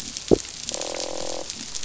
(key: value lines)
label: biophony, croak
recorder: SoundTrap 500